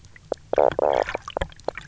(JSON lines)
{"label": "biophony, knock croak", "recorder": "SoundTrap 300"}